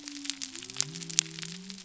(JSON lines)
{"label": "biophony", "recorder": "SoundTrap 300"}